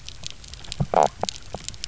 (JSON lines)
{"label": "biophony, knock croak", "recorder": "SoundTrap 300"}